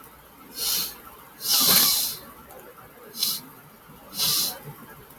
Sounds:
Sniff